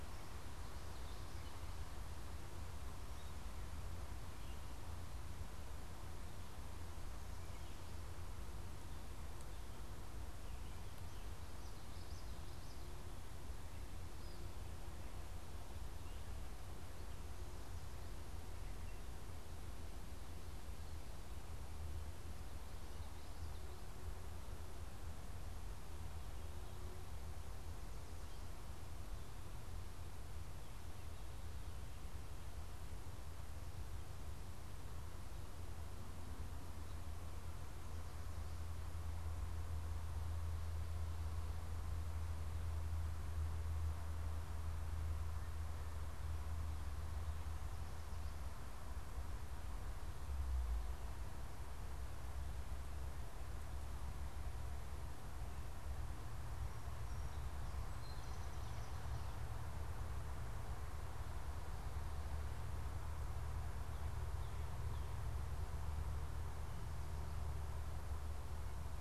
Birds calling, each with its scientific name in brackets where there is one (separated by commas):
Song Sparrow (Melospiza melodia), Common Yellowthroat (Geothlypis trichas)